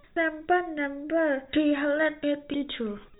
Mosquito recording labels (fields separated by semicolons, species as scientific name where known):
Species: no mosquito; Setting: cup